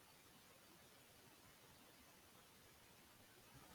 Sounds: Sneeze